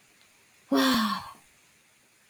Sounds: Sigh